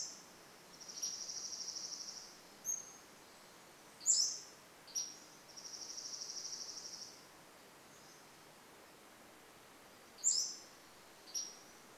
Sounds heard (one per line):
Dark-eyed Junco song
Pacific-slope Flycatcher song